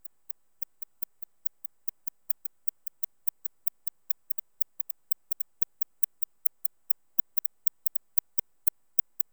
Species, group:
Barbitistes fischeri
Orthoptera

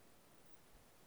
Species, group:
Odontura macphersoni
Orthoptera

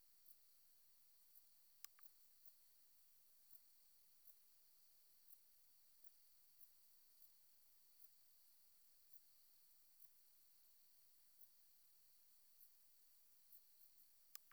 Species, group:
Leptophyes punctatissima
Orthoptera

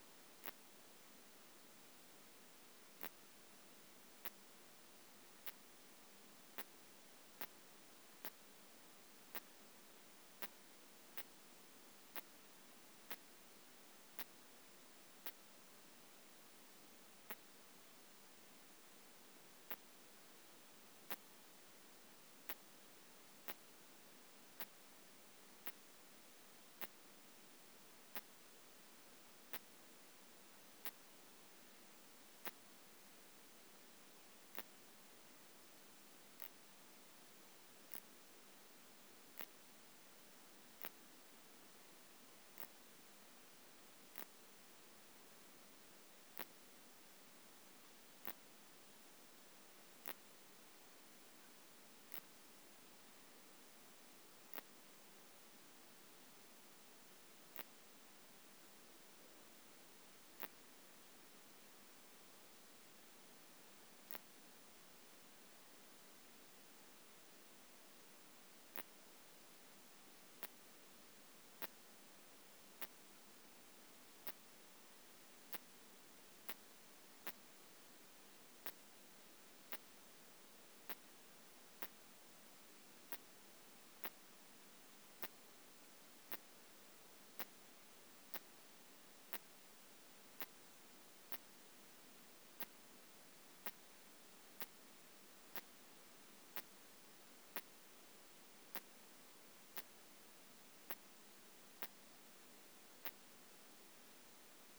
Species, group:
Phaneroptera nana
Orthoptera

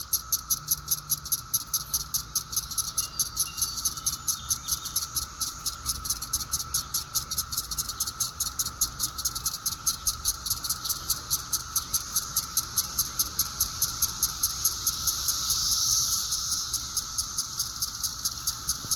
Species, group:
Magicicada septendecula
Cicadidae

